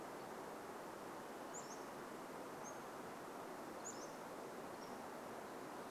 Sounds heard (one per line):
Pacific-slope Flycatcher song
Varied Thrush song